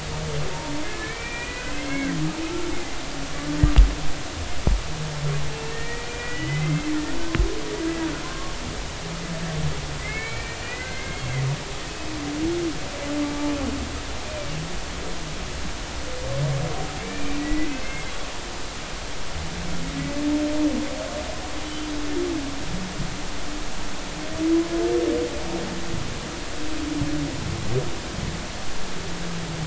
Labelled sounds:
0.9	2.1	humpback whale, 1.5 to 2.8 kHz
2.4	2.7	humpback whale, 1.2 to 1.4 kHz
5.7	6.9	humpback whale, 1.8 to 3.0 kHz
8.2	8.6	humpback whale, 0.96 to 1.2 kHz
10.0	11.3	humpback whale, 1.5 to 2.4 kHz
14.2	14.5	humpback whale, 2.2 to 2.5 kHz
17.0	18.1	humpback whale, 1.9 to 2.7 kHz
21.6	21.9	humpback whale, 3.0 to 3.1 kHz

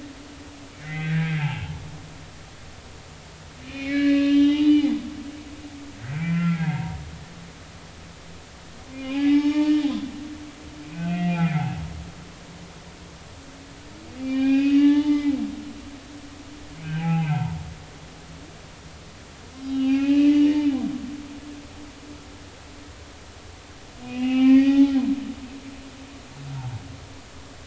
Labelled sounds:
0.7	1.7	humpback whale, 0.80 to 2.9 kHz
3.6	4.9	humpback whale, 0.83 to 4.3 kHz
6.0	7.0	humpback whale, 0.86 to 2.4 kHz
9.1	9.8	humpback whale, 0.80 to 5.3 kHz
10.8	11.8	humpback whale, 0.80 to 2.8 kHz
14.2	15.3	humpback whale, 0.80 to 5.0 kHz
16.8	17.6	humpback whale, 0.80 to 2.7 kHz
19.6	20.7	humpback whale, 0.80 to 5.0 kHz
24.0	24.9	humpback whale, 0.80 to 4.7 kHz
26.5	26.8	humpback whale, 0.80 to 0.99 kHz

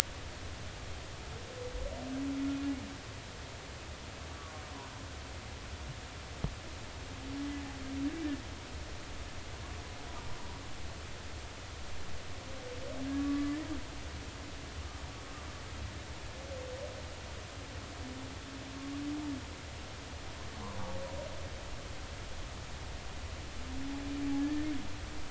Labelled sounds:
4.4	4.6	humpback whale, 1.0 to 1.3 kHz
13.1	13.6	humpback whale, 1.1 to 1.2 kHz
24.4	24.7	humpback whale, 1.6 to 1.9 kHz

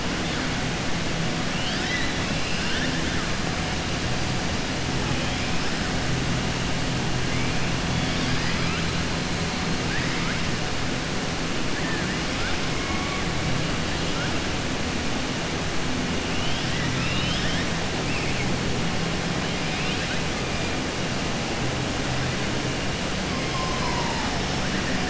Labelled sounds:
1.5	2.9	killer whale, southern resident, 1.2 to 5.8 kHz
9.8	10.4	killer whale, southern resident, 1.2 to 2.7 kHz
11.8	12.1	killer whale, southern resident, 1.5 to 1.9 kHz
16.3	17.7	killer whale, southern resident, 1.3 to 5.5 kHz

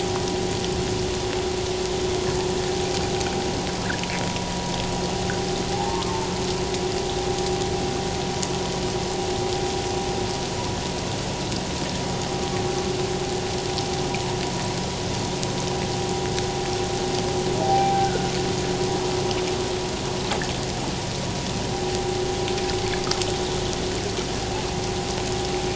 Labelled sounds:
5.7	6.2	humpback whale, 0.78 to 1.3 kHz
17.6	18.3	humpback whale, 0.78 to 1.6 kHz

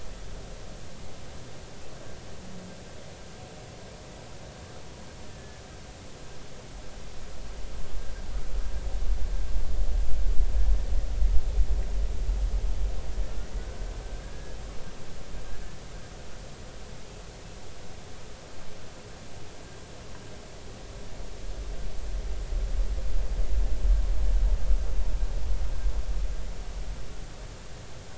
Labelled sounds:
5.3	5.6	humpback whale, 1.7 to 1.8 kHz
14.0	14.6	humpback whale, 1.5 to 1.8 kHz

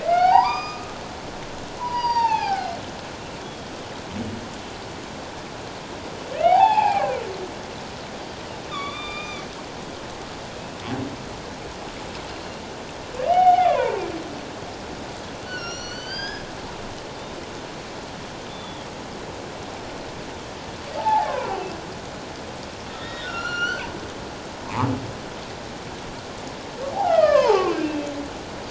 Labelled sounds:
0.0	0.9	humpback whale, 0.78 to 5.1 kHz
1.8	2.7	humpback whale, 0.78 to 5.8 kHz
3.4	3.7	humpback whale, 3.2 to 3.5 kHz
6.3	7.1	humpback whale, 0.78 to 3.7 kHz
8.7	9.5	humpback whale, 1.1 to 4.9 kHz
12.4	14.0	humpback whale, 0.78 to 4.2 kHz
15.4	16.4	humpback whale, 1.3 to 6.3 kHz
18.5	18.9	humpback whale, 3.2 to 3.6 kHz
21.0	21.6	humpback whale, 0.78 to 1.9 kHz
22.9	23.9	humpback whale, 1.2 to 7.2 kHz
26.9	28.1	humpback whale, 0.78 to 3.4 kHz

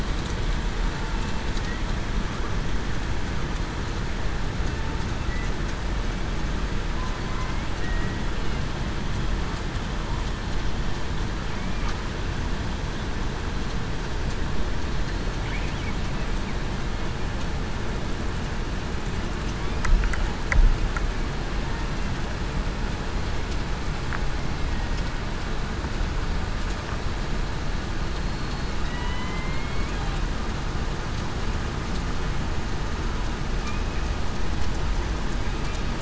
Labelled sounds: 7.8	8.2	killer whale, southern resident, 1.8 to 1.9 kHz
28.8	29.9	killer whale, southern resident, 1.9 to 3.1 kHz

